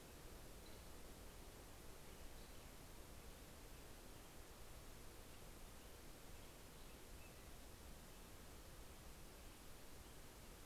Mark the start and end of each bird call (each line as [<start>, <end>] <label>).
[0.00, 10.65] Black-headed Grosbeak (Pheucticus melanocephalus)